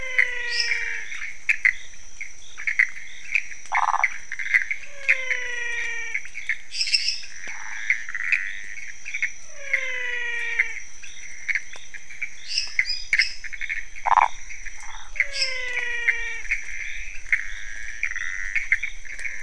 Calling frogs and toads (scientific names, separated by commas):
Physalaemus albonotatus, Leptodactylus podicipinus, Pithecopus azureus, Dendropsophus minutus, Phyllomedusa sauvagii